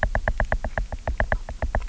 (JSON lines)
{"label": "biophony, knock", "recorder": "SoundTrap 300"}